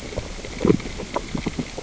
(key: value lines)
label: biophony, grazing
recorder: SoundTrap 600 or HydroMoth